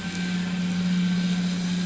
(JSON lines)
{"label": "anthrophony, boat engine", "recorder": "SoundTrap 500"}